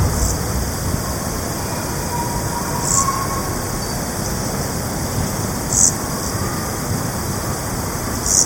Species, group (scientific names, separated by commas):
Chorthippus brunneus, Orthoptera